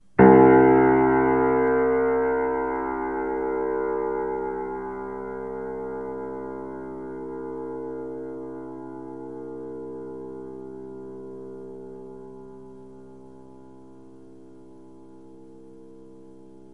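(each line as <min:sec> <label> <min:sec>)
0:00.1 A loud piano note is played. 0:03.9
0:04.0 A piano note is sustained and slowly fades away. 0:16.5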